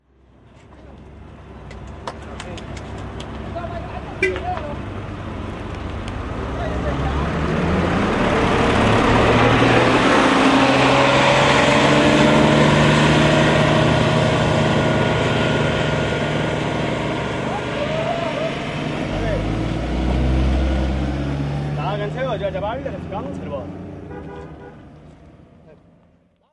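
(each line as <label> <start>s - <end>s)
A dump truck passes by loudly and moves away. 0.0s - 26.5s
Hands are shaking. 1.7s - 3.6s
People are having a muffled conversation in the background. 2.4s - 8.8s
A car is beeping. 4.1s - 4.7s
People are having a muffled conversation in the background. 17.6s - 20.1s
A muffled conversation fades in the background. 21.8s - 26.5s
A car is beeping. 23.9s - 25.3s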